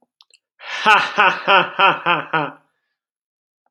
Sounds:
Laughter